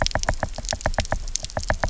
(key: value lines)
label: biophony, knock
recorder: SoundTrap 300